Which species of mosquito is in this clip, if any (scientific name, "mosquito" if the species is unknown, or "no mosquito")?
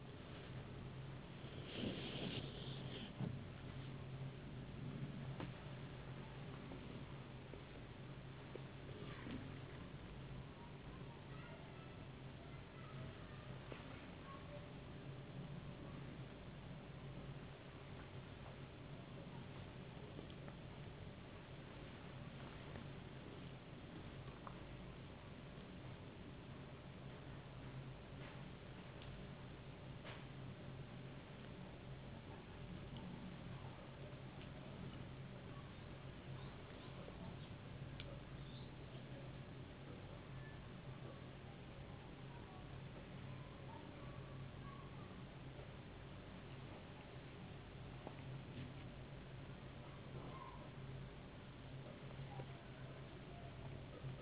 no mosquito